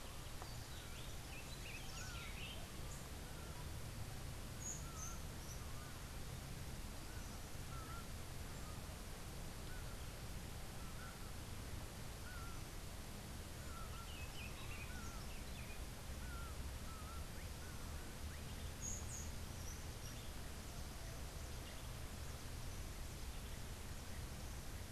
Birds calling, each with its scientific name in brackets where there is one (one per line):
Laughing Falcon (Herpetotheres cachinnans)
Buff-throated Saltator (Saltator maximus)